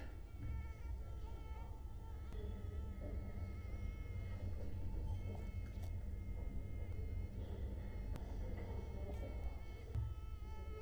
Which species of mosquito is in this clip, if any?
Culex quinquefasciatus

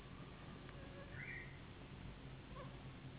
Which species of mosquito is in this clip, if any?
Anopheles gambiae s.s.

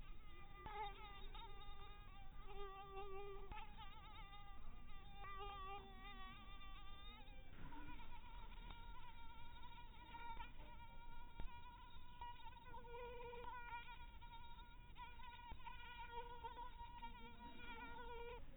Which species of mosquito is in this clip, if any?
mosquito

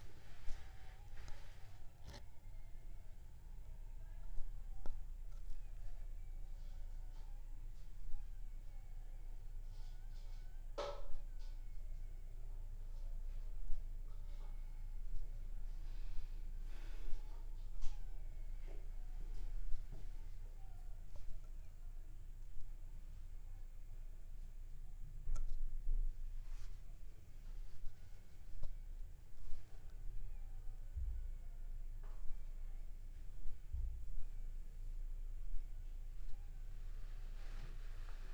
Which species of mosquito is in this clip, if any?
Aedes aegypti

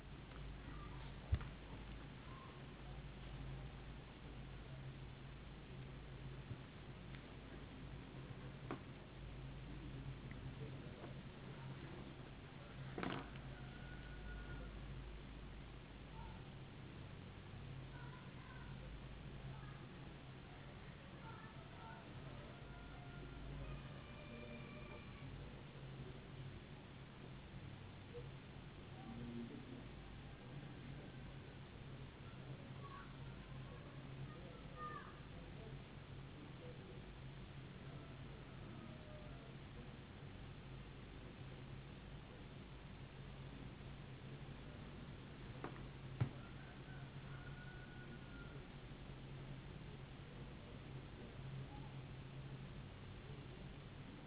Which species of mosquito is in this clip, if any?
no mosquito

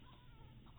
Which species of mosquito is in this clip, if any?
mosquito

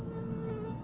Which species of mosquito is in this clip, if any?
Aedes albopictus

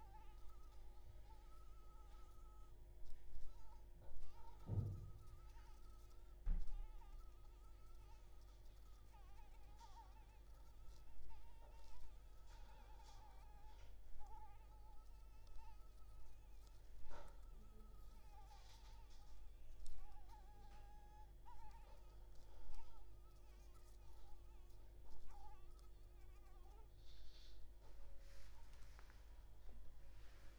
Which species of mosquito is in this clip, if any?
Anopheles maculipalpis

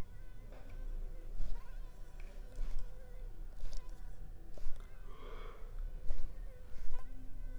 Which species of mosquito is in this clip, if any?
Culex pipiens complex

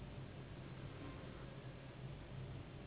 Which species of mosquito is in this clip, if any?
Anopheles gambiae s.s.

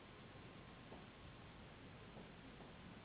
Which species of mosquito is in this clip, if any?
Anopheles gambiae s.s.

